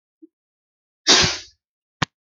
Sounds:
Sneeze